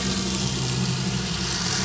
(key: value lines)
label: anthrophony, boat engine
recorder: SoundTrap 500